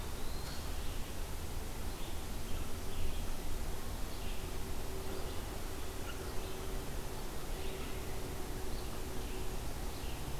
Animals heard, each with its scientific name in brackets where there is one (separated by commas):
Red-eyed Vireo (Vireo olivaceus), Eastern Wood-Pewee (Contopus virens)